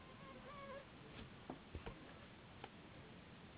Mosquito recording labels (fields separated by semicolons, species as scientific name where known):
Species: Anopheles gambiae s.s.; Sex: female; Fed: unfed; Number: one; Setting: insect culture